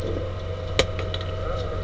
{"label": "anthrophony, boat engine", "recorder": "SoundTrap 300"}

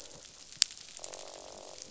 {"label": "biophony, croak", "recorder": "SoundTrap 500"}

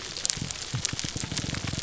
{"label": "biophony, grouper groan", "recorder": "SoundTrap 300"}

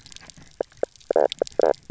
{"label": "biophony, knock croak", "recorder": "SoundTrap 300"}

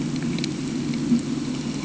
{"label": "anthrophony, boat engine", "recorder": "HydroMoth"}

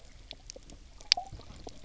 {"label": "biophony, knock croak", "recorder": "SoundTrap 300"}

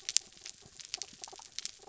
{"label": "anthrophony, mechanical", "recorder": "SoundTrap 300"}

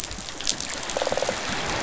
{"label": "biophony", "recorder": "SoundTrap 500"}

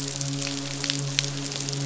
{"label": "biophony, midshipman", "recorder": "SoundTrap 500"}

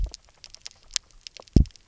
{"label": "biophony, double pulse", "recorder": "SoundTrap 300"}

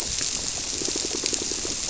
{"label": "biophony, squirrelfish (Holocentrus)", "recorder": "SoundTrap 300"}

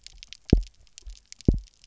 {"label": "biophony, double pulse", "recorder": "SoundTrap 300"}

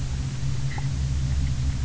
{"label": "anthrophony, boat engine", "recorder": "SoundTrap 300"}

